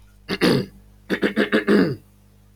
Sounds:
Throat clearing